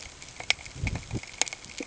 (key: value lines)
label: ambient
recorder: HydroMoth